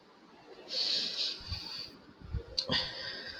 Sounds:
Sigh